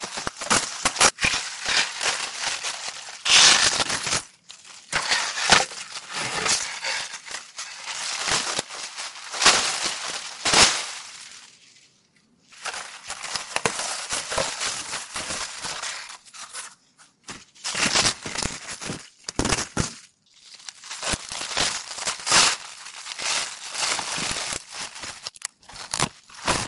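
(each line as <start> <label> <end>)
0.1 Footsteps through the grass. 11.4
4.9 A man breathes heavily. 9.2
12.6 Tearing sounds. 26.7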